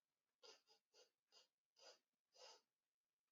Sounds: Sniff